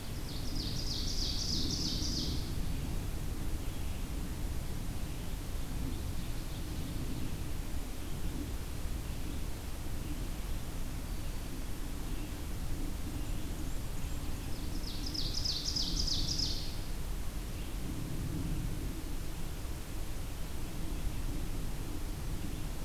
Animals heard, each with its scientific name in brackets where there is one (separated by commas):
Ovenbird (Seiurus aurocapilla)